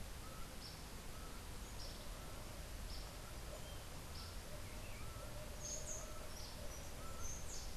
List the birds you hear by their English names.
Laughing Falcon, Yellow Warbler